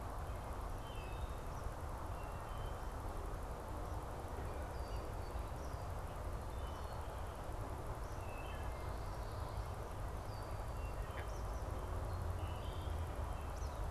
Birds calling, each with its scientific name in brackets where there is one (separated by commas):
Red-winged Blackbird (Agelaius phoeniceus), Wood Thrush (Hylocichla mustelina), Eastern Kingbird (Tyrannus tyrannus)